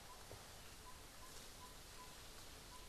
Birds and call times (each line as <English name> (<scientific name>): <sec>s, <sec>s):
Yellow-rumped Tinkerbird (Pogoniulus bilineatus): 2.7s